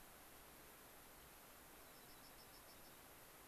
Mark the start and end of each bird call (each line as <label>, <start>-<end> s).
Dark-eyed Junco (Junco hyemalis), 1.7-3.0 s